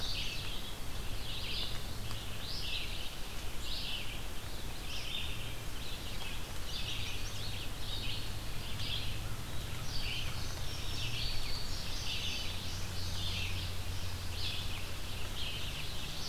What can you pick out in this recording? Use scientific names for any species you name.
Passerina cyanea, Vireo olivaceus